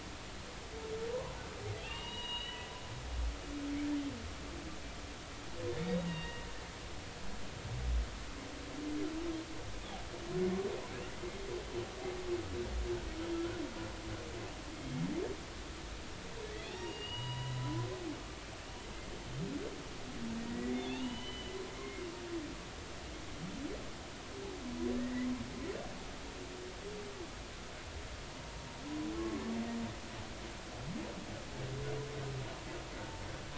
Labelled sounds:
1.8	2.7	humpback whale, 0.90 to 4.0 kHz
5.7	6.4	humpback whale, 1.8 to 3.9 kHz
13.3	13.6	humpback whale, 1.3 to 1.6 kHz
14.7	15.0	humpback whale, 2.1 to 2.3 kHz
16.7	17.9	humpback whale, 0.83 to 4.9 kHz
20.5	22.0	humpback whale, 0.80 to 4.1 kHz
25.0	25.3	humpback whale, 1.7 to 2.1 kHz
29.1	29.4	humpback whale, 1.0 to 1.2 kHz
33.0	33.5	humpback whale, 0.83 to 1.2 kHz

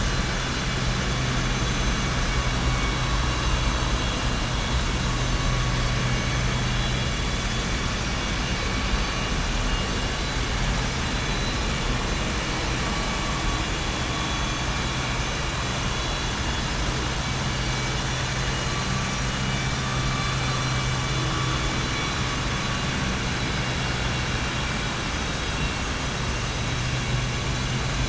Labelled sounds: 22.4	23.0	vessel noise, 2.4 to 4.6 kHz

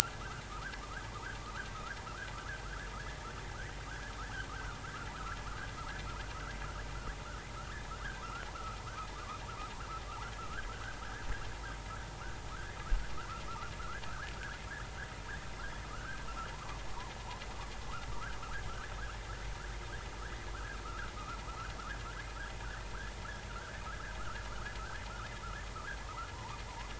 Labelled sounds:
0.8	2.3	vessel noise, 0.83 to 1.8 kHz
5.1	5.4	vessel noise, 0.96 to 1.8 kHz
8.2	8.5	vessel noise, 1.1 to 1.7 kHz
9.2	9.4	vessel noise, 0.99 to 1.3 kHz
10.4	11.0	vessel noise, 1.2 to 1.8 kHz
12.5	12.8	vessel noise, 0.99 to 1.9 kHz
13.5	14.3	vessel noise, 1.0 to 1.8 kHz
15.8	17.1	vessel noise, 0.83 to 1.7 kHz
18.1	18.4	vessel noise, 1.1 to 1.7 kHz
20.5	21.1	vessel noise, 1.1 to 1.8 kHz
23.5	24.4	vessel noise, 1.2 to 1.8 kHz
26.0	26.6	vessel noise, 0.83 to 1.5 kHz

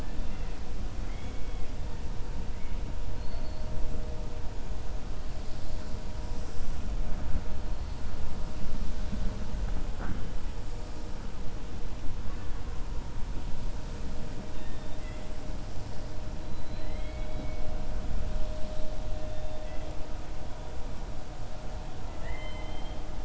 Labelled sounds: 14.4	15.2	killer whale, 1.3 to 4.5 kHz
16.5	17.6	killer whale, 1.7 to 4.5 kHz
22.0	23.0	killer whale, 0.67 to 4.2 kHz

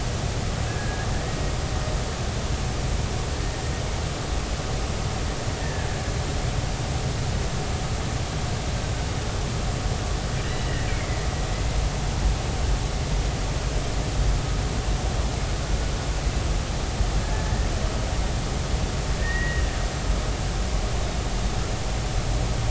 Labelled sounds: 0.7	1.1	killer whale, Bigg's (transient), 1.6 to 1.9 kHz
5.6	5.9	killer whale, Bigg's (transient), 1.5 to 1.9 kHz
10.4	11.2	killer whale, Bigg's (transient), 1.8 to 2.4 kHz
17.2	17.7	killer whale, Bigg's (transient), 1.6 to 2.0 kHz
19.2	19.6	killer whale, Bigg's (transient), 1.7 to 2.0 kHz

